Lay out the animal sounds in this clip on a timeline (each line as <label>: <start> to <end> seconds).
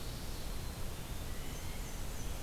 Black-capped Chickadee (Poecile atricapillus): 0.4 to 1.3 seconds
Blue Jay (Cyanocitta cristata): 1.1 to 2.0 seconds
Black-and-white Warbler (Mniotilta varia): 1.2 to 2.4 seconds